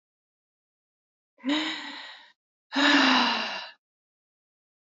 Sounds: Sigh